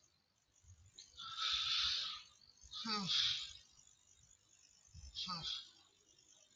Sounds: Sigh